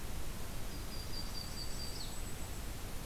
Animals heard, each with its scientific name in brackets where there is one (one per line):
Blackpoll Warbler (Setophaga striata)
Yellow-rumped Warbler (Setophaga coronata)